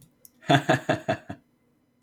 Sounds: Laughter